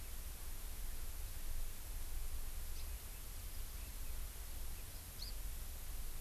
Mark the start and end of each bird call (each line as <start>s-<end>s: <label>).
2.7s-2.9s: House Finch (Haemorhous mexicanus)
5.1s-5.3s: House Finch (Haemorhous mexicanus)